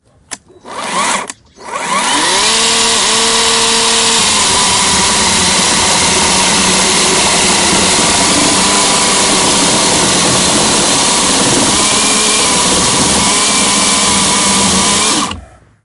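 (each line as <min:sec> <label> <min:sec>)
0:00.3 A chainsaw starts. 0:15.5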